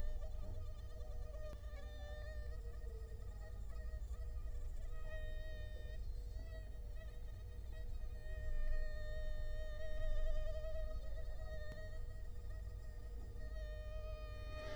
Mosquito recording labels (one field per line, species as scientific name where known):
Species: Culex quinquefasciatus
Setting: cup